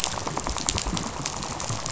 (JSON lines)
{"label": "biophony, rattle", "recorder": "SoundTrap 500"}